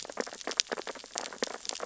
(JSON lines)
{"label": "biophony, sea urchins (Echinidae)", "recorder": "SoundTrap 600 or HydroMoth"}